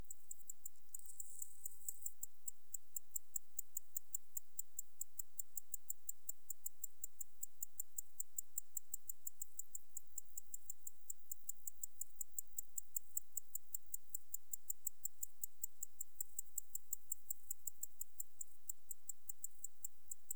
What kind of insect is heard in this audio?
orthopteran